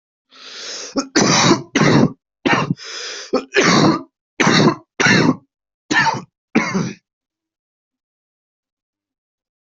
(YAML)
expert_labels:
- quality: good
  cough_type: dry
  dyspnea: false
  wheezing: true
  stridor: false
  choking: false
  congestion: false
  nothing: false
  diagnosis: lower respiratory tract infection
  severity: severe
age: 22
gender: female
respiratory_condition: true
fever_muscle_pain: false
status: COVID-19